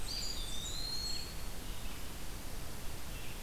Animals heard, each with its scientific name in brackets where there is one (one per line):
Red-eyed Vireo (Vireo olivaceus)
Blackburnian Warbler (Setophaga fusca)
Eastern Wood-Pewee (Contopus virens)